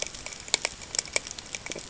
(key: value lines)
label: ambient
recorder: HydroMoth